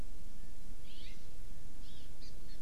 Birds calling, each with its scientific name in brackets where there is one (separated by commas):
House Finch (Haemorhous mexicanus), Hawaii Amakihi (Chlorodrepanis virens)